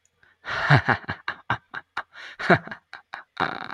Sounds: Laughter